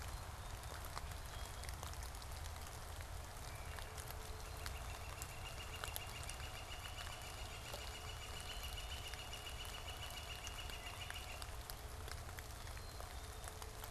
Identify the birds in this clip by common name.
Wood Thrush, Northern Flicker